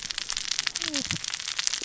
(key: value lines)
label: biophony, cascading saw
recorder: SoundTrap 600 or HydroMoth